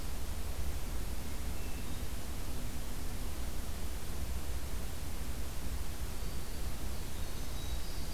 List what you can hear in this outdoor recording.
Hermit Thrush, Winter Wren, Northern Parula